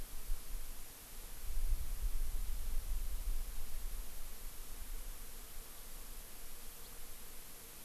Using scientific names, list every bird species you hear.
Haemorhous mexicanus